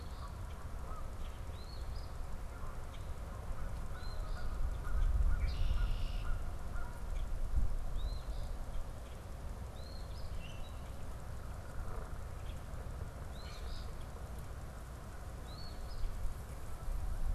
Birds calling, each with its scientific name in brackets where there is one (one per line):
Common Grackle (Quiscalus quiscula)
Eastern Phoebe (Sayornis phoebe)
Canada Goose (Branta canadensis)
Red-winged Blackbird (Agelaius phoeniceus)